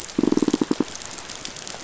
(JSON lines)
{"label": "biophony, pulse", "recorder": "SoundTrap 500"}